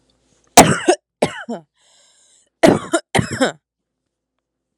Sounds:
Cough